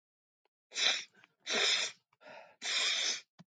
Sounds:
Sniff